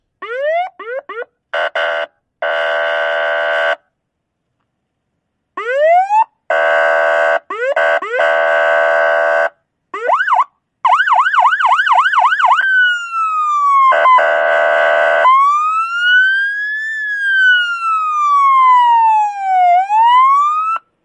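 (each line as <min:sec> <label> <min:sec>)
0:00.2 A police siren sounds with two short pauses. 0:01.3
0:01.5 Two sounds of electromagnetic interference repeating. 0:02.1
0:02.4 Constant electromagnetic interference. 0:03.8
0:05.6 A police siren starts sounding. 0:06.3
0:06.5 Constant electromagnetic interference. 0:07.4
0:08.1 Constant electromagnetic interference. 0:09.5
0:10.0 A police siren is sounding. 0:14.1
0:14.4 Constant electromagnetic interference. 0:15.3
0:15.5 A police siren is sounding. 0:20.7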